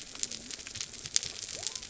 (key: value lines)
label: biophony
recorder: SoundTrap 300